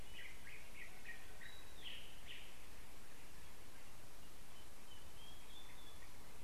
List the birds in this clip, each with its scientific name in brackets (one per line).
Yellow-whiskered Greenbul (Eurillas latirostris)